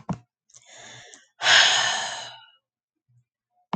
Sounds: Sigh